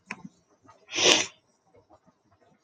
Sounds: Sniff